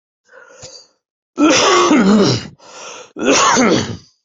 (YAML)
expert_labels:
- quality: ok
  cough_type: unknown
  dyspnea: false
  wheezing: false
  stridor: false
  choking: false
  congestion: false
  nothing: true
  diagnosis: healthy cough
  severity: pseudocough/healthy cough
age: 40
gender: male
respiratory_condition: true
fever_muscle_pain: true
status: COVID-19